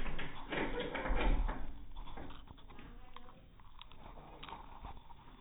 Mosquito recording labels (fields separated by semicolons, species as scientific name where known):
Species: no mosquito; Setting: cup